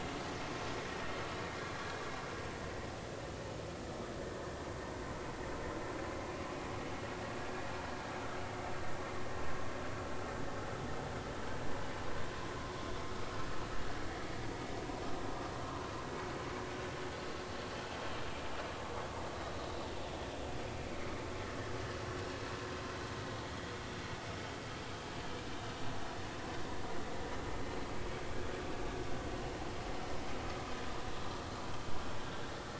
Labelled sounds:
21.4	21.7	vessel noise, 1.6 to 2.0 kHz

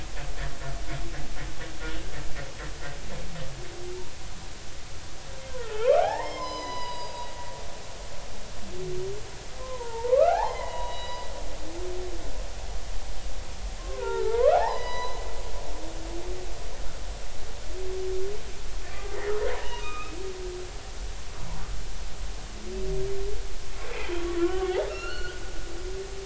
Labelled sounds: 5.6	7.3	humpback whale, 0.80 to 6.2 kHz
9.6	11.2	humpback whale, 0.80 to 4.0 kHz
13.8	15.2	humpback whale, 0.80 to 5.1 kHz
19.5	20.2	humpback whale, 0.86 to 3.8 kHz
24.4	25.4	humpback whale, 0.99 to 4.4 kHz

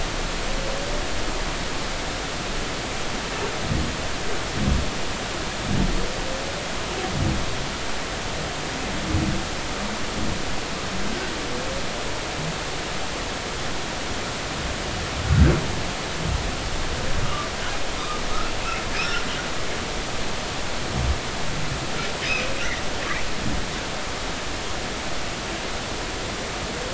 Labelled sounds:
17.2	17.5	humpback whale, 1.1 to 1.3 kHz
18.9	19.2	humpback whale, 4.8 to 5.6 kHz

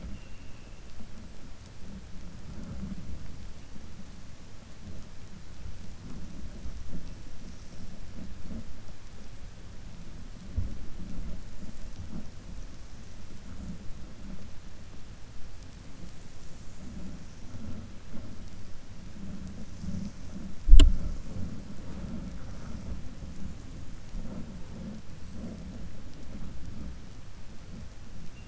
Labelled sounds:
0.0	0.7	vessel noise, 2.2 to 3.0 kHz

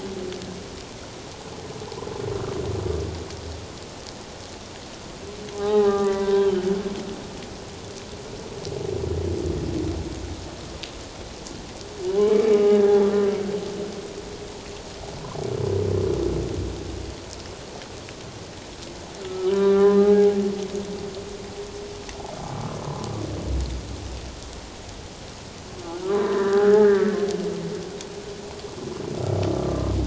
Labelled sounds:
5.5	6.7	humpback whale, 0.78 to 3.2 kHz
12.1	13.0	humpback whale, 0.91 to 2.4 kHz
19.2	20.3	humpback whale, 0.78 to 1.8 kHz
26.1	27.1	humpback whale, 0.97 to 1.9 kHz

